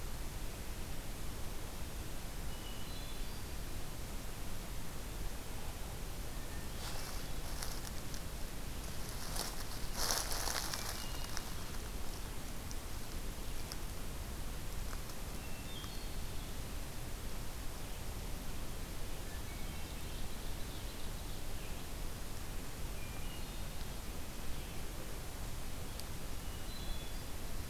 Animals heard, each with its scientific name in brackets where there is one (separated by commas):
Hermit Thrush (Catharus guttatus), Ovenbird (Seiurus aurocapilla)